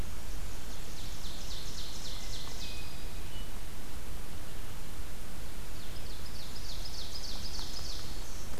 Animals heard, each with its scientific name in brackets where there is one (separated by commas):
Ovenbird (Seiurus aurocapilla), Black-throated Green Warbler (Setophaga virens), Hermit Thrush (Catharus guttatus)